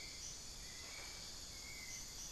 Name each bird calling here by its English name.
Hauxwell's Thrush, unidentified bird